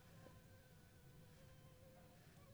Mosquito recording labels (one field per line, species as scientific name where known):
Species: Anopheles funestus s.s.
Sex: female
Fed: unfed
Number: one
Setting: cup